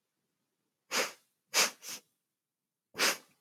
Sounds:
Sniff